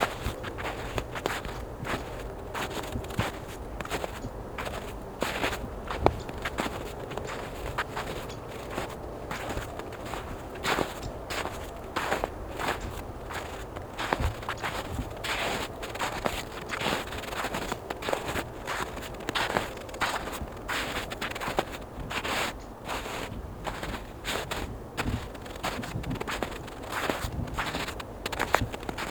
Is this person walking on snow?
yes